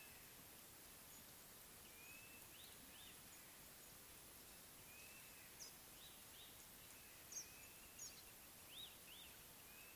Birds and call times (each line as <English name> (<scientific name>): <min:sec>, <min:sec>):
Blue-naped Mousebird (Urocolius macrourus): 0:02.1